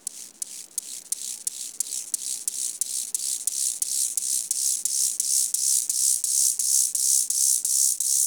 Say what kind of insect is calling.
orthopteran